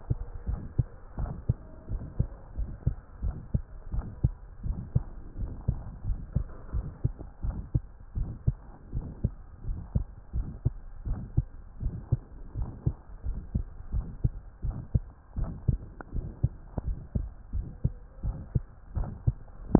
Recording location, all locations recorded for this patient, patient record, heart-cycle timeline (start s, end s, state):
tricuspid valve (TV)
aortic valve (AV)+pulmonary valve (PV)+tricuspid valve (TV)+mitral valve (MV)
#Age: Adolescent
#Sex: Male
#Height: 148.0 cm
#Weight: 35.8 kg
#Pregnancy status: False
#Murmur: Present
#Murmur locations: aortic valve (AV)+mitral valve (MV)+pulmonary valve (PV)+tricuspid valve (TV)
#Most audible location: tricuspid valve (TV)
#Systolic murmur timing: Early-systolic
#Systolic murmur shape: Plateau
#Systolic murmur grading: II/VI
#Systolic murmur pitch: Low
#Systolic murmur quality: Harsh
#Diastolic murmur timing: nan
#Diastolic murmur shape: nan
#Diastolic murmur grading: nan
#Diastolic murmur pitch: nan
#Diastolic murmur quality: nan
#Outcome: Abnormal
#Campaign: 2015 screening campaign
0.00	0.06	systole
0.06	0.18	S2
0.18	0.46	diastole
0.46	0.60	S1
0.60	0.74	systole
0.74	0.86	S2
0.86	1.18	diastole
1.18	1.30	S1
1.30	1.46	systole
1.46	1.60	S2
1.60	1.90	diastole
1.90	2.02	S1
2.02	2.16	systole
2.16	2.30	S2
2.30	2.56	diastole
2.56	2.70	S1
2.70	2.84	systole
2.84	2.98	S2
2.98	3.22	diastole
3.22	3.36	S1
3.36	3.50	systole
3.50	3.62	S2
3.62	3.90	diastole
3.90	4.06	S1
4.06	4.22	systole
4.22	4.36	S2
4.36	4.62	diastole
4.62	4.76	S1
4.76	4.92	systole
4.92	5.06	S2
5.06	5.38	diastole
5.38	5.50	S1
5.50	5.66	systole
5.66	5.80	S2
5.80	6.06	diastole
6.06	6.18	S1
6.18	6.34	systole
6.34	6.48	S2
6.48	6.72	diastole
6.72	6.86	S1
6.86	7.02	systole
7.02	7.16	S2
7.16	7.43	diastole
7.43	7.62	S1
7.62	7.73	systole
7.73	7.84	S2
7.84	8.14	diastole
8.14	8.32	S1
8.32	8.44	systole
8.44	8.56	S2
8.56	8.92	diastole
8.92	9.06	S1
9.06	9.22	systole
9.22	9.36	S2
9.36	9.64	diastole
9.64	9.78	S1
9.78	9.92	systole
9.92	10.08	S2
10.08	10.32	diastole
10.32	10.48	S1
10.48	10.62	systole
10.62	10.74	S2
10.74	11.04	diastole
11.04	11.18	S1
11.18	11.32	systole
11.32	11.48	S2
11.48	11.80	diastole
11.80	11.94	S1
11.94	12.08	systole
12.08	12.20	S2
12.20	12.56	diastole
12.56	12.70	S1
12.70	12.83	systole
12.83	12.96	S2
12.96	13.22	diastole
13.22	13.41	S1
13.41	13.52	systole
13.52	13.68	S2
13.68	13.92	diastole
13.92	14.06	S1
14.06	14.22	systole
14.22	14.32	S2
14.32	14.62	diastole
14.62	14.76	S1
14.76	14.92	systole
14.92	15.08	S2
15.08	15.36	diastole
15.36	15.50	S1
15.50	15.66	systole
15.66	15.82	S2
15.82	16.12	diastole
16.12	16.29	S1
16.29	16.41	systole
16.41	16.54	S2
16.54	16.86	diastole
16.86	16.98	S1
16.98	17.14	systole
17.14	17.30	S2
17.30	17.51	diastole
17.51	17.66	S1
17.66	17.80	systole
17.80	17.94	S2
17.94	18.21	diastole
18.21	18.38	S1
18.38	18.51	systole
18.51	18.66	S2
18.66	18.94	diastole
18.94	19.10	S1
19.10	19.23	systole
19.23	19.36	S2
19.36	19.68	diastole
19.68	19.79	S1